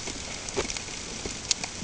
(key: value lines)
label: ambient
recorder: HydroMoth